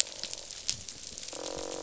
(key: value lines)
label: biophony, croak
recorder: SoundTrap 500